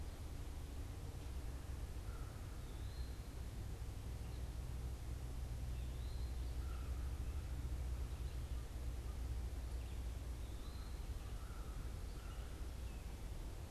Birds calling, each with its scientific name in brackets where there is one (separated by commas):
Eastern Wood-Pewee (Contopus virens), American Crow (Corvus brachyrhynchos)